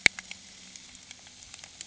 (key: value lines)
label: anthrophony, boat engine
recorder: HydroMoth